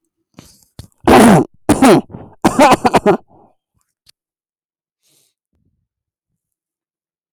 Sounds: Cough